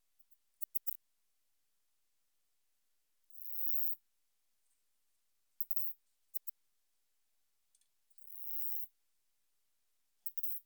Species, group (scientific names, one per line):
Poecilimon antalyaensis
Orthoptera